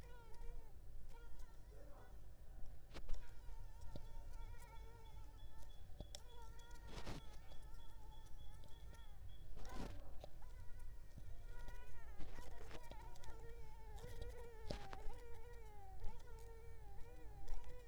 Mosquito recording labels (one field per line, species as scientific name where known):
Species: Mansonia uniformis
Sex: female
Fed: unfed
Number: one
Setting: cup